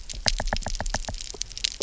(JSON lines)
{"label": "biophony, knock", "recorder": "SoundTrap 300"}